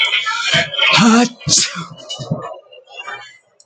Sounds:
Sneeze